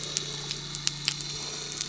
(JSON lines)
{"label": "anthrophony, boat engine", "recorder": "SoundTrap 300"}